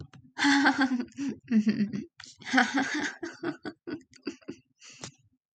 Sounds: Laughter